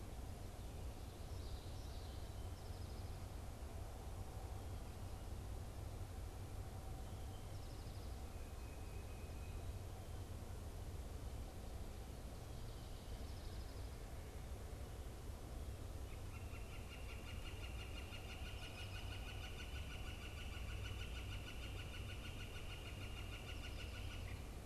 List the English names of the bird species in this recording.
Common Yellowthroat, Tufted Titmouse, Northern Flicker